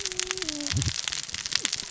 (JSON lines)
{"label": "biophony, cascading saw", "recorder": "SoundTrap 600 or HydroMoth"}